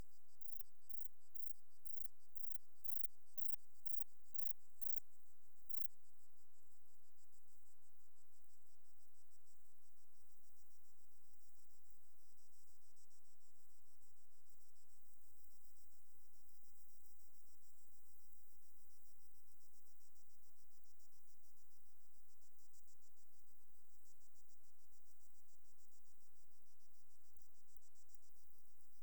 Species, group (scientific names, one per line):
Platycleis albopunctata
Orthoptera